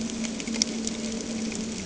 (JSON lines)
{"label": "anthrophony, boat engine", "recorder": "HydroMoth"}